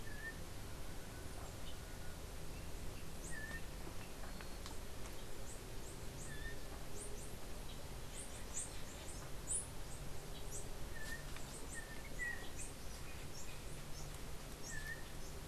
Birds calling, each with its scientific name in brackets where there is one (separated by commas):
Yellow-backed Oriole (Icterus chrysater), unidentified bird